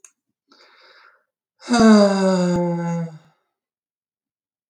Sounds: Sigh